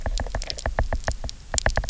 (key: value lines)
label: biophony, knock
recorder: SoundTrap 300